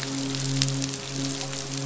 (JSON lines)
{"label": "biophony, midshipman", "recorder": "SoundTrap 500"}